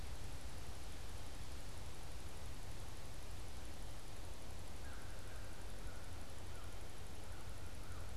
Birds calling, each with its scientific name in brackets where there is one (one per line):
American Crow (Corvus brachyrhynchos)